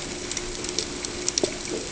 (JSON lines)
{"label": "ambient", "recorder": "HydroMoth"}